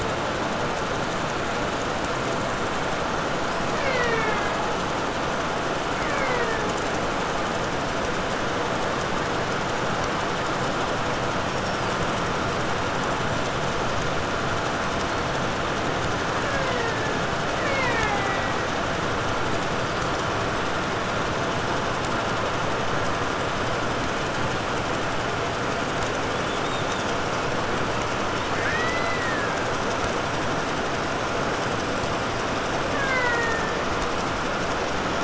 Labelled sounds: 3.2	4.9	killer whale, Bigg's (transient), 0.24 to 6.6 kHz
5.7	7.2	killer whale, Bigg's (transient), 0.28 to 3.0 kHz
11.4	12.2	killer whale, 3.8 to 5.8 kHz
16.1	18.8	killer whale, Bigg's (transient), 0.19 to 7.2 kHz
26.1	27.4	killer whale, 2.9 to 4.1 kHz
28.3	30.0	killer whale, Bigg's (transient), 0.89 to 5.9 kHz
32.7	34.1	killer whale, Bigg's (transient), 0.28 to 5.3 kHz

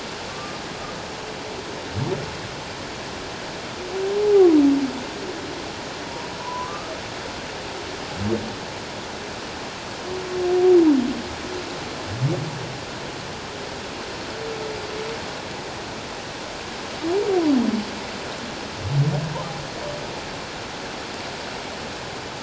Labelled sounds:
0.3	0.6	humpback whale, 1.1 to 1.2 kHz
4.2	4.5	humpback whale, 0.78 to 0.88 kHz
6.4	6.9	humpback whale, 0.94 to 1.3 kHz

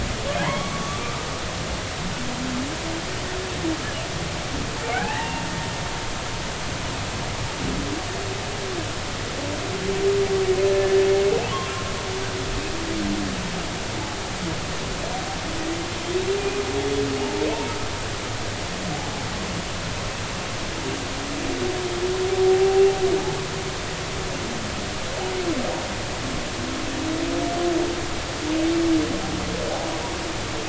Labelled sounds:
0.4	1.2	humpback whale, 0.80 to 2.3 kHz
4.9	5.4	humpback whale, 0.80 to 2.0 kHz
17.2	17.5	humpback whale, 0.80 to 0.93 kHz
22.4	22.8	humpback whale, 0.80 to 0.83 kHz

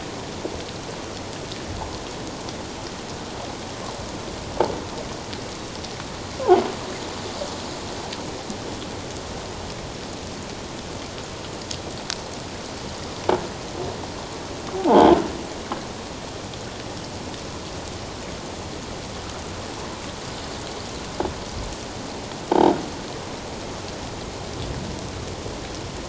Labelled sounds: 14.9	15.2	croaking sound likely from a nearby submerged object, 0.78 to 1.1 kHz

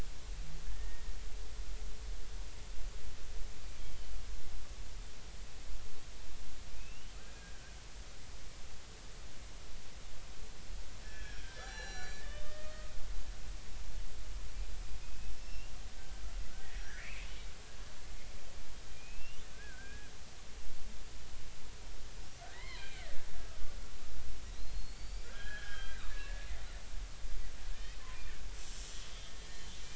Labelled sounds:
0.7	1.1	killer whale, Bigg's (transient), 1.8 to 1.9 kHz
6.8	7.7	killer whale, Bigg's (transient), 1.5 to 3.0 kHz
11.0	12.9	killer whale, Bigg's (transient), 1.2 to 7.0 kHz
15.3	15.7	killer whale, Bigg's (transient), 2.6 to 5.5 kHz
16.6	17.1	killer whale, Bigg's (transient), 1.4 to 6.0 kHz
18.0	20.1	killer whale, Bigg's (transient), 1.4 to 3.1 kHz
22.5	23.2	killer whale, Bigg's (transient), 0.93 to 4.4 kHz
23.5	23.8	killer whale, Bigg's (transient), 1.1 to 1.3 kHz
24.6	26.5	killer whale, Bigg's (transient), 1.2 to 7.1 kHz
29.6	29.8	killer whale, Bigg's (transient), 3.0 to 3.2 kHz

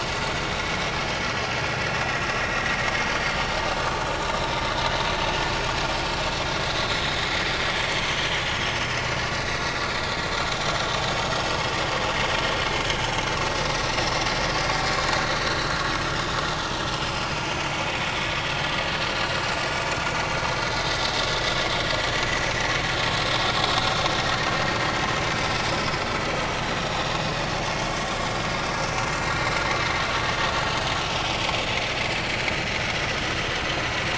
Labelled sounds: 4.2	4.5	vessel noise, 3.7 to 3.9 kHz
6.9	7.6	vessel noise, 4.5 to 5.3 kHz
11.4	11.6	vessel noise, 4.9 to 5.2 kHz
16.8	17.3	vessel noise, 4.9 to 5.4 kHz
21.3	21.5	vessel noise, 3.4 to 3.6 kHz
26.7	27.1	vessel noise, 6.7 to 6.9 kHz
30.6	30.9	vessel noise, 6.3 to 6.6 kHz

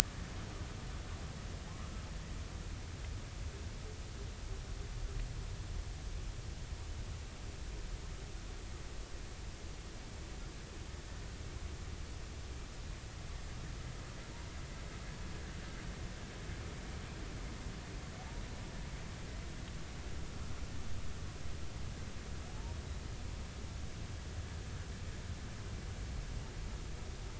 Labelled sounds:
22.5	22.7	humpback whale, 0.80 to 0.99 kHz

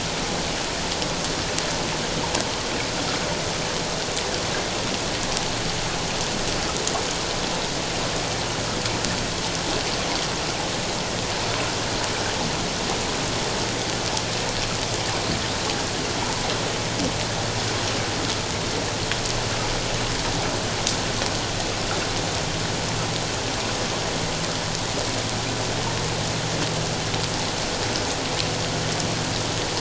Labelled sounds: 16.2	16.5	water noise, 0.84 to 1.1 kHz

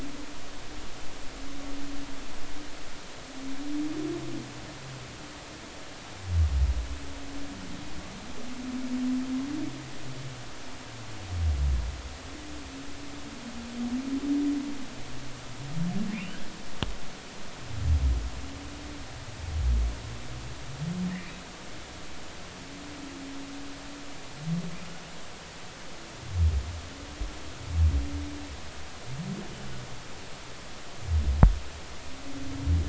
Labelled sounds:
16.1	16.4	humpback whale, 2.1 to 3.0 kHz

